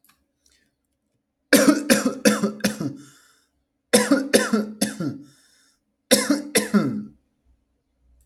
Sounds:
Cough